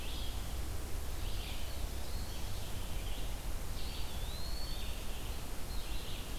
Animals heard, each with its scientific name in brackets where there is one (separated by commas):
Red-eyed Vireo (Vireo olivaceus), Eastern Wood-Pewee (Contopus virens)